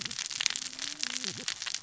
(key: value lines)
label: biophony, cascading saw
recorder: SoundTrap 600 or HydroMoth